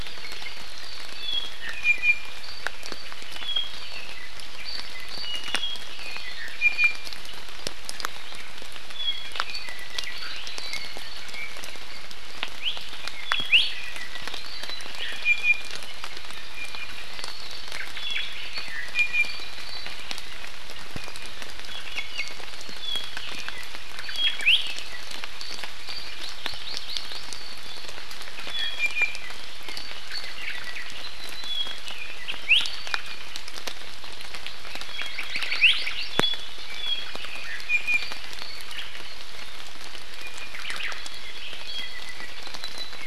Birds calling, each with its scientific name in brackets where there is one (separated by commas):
Hawaii Amakihi (Chlorodrepanis virens), Iiwi (Drepanis coccinea), Omao (Myadestes obscurus), Apapane (Himatione sanguinea)